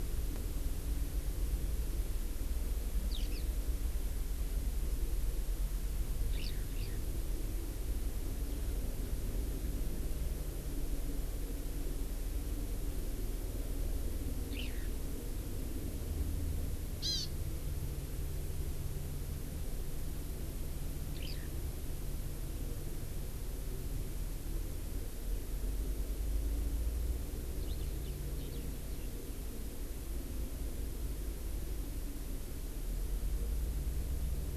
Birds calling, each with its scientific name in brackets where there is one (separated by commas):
Eurasian Skylark (Alauda arvensis), Hawaii Amakihi (Chlorodrepanis virens)